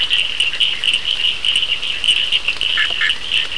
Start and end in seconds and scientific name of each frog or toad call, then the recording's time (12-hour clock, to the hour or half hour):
0.0	3.5	Sphaenorhynchus surdus
2.6	3.4	Boana bischoffi
9pm